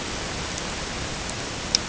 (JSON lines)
{"label": "ambient", "recorder": "HydroMoth"}